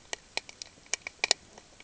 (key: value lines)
label: ambient
recorder: HydroMoth